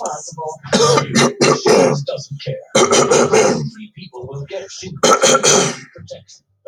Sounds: Throat clearing